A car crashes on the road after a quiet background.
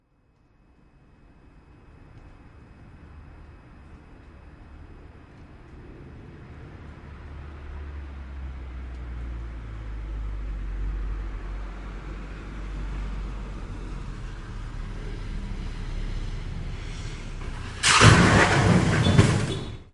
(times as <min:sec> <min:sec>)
0:17.8 0:19.9